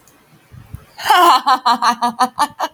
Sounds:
Laughter